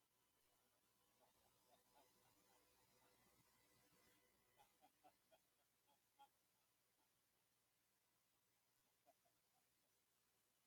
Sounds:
Laughter